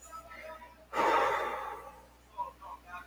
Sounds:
Sigh